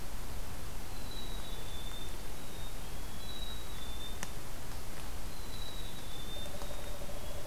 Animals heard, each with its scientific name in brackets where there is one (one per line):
Black-capped Chickadee (Poecile atricapillus)